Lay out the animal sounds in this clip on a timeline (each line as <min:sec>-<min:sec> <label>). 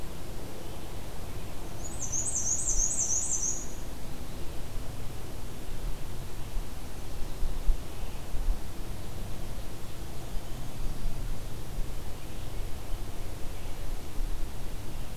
0:01.7-0:03.8 Black-and-white Warbler (Mniotilta varia)